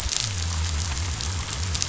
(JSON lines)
{"label": "biophony", "recorder": "SoundTrap 500"}